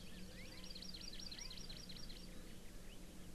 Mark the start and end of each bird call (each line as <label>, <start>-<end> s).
Hawaii Amakihi (Chlorodrepanis virens), 0.0-2.3 s